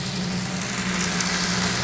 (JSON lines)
{"label": "anthrophony, boat engine", "recorder": "SoundTrap 500"}